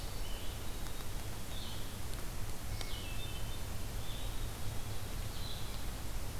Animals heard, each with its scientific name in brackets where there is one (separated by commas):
Blue-headed Vireo (Vireo solitarius), Hermit Thrush (Catharus guttatus), Black-capped Chickadee (Poecile atricapillus)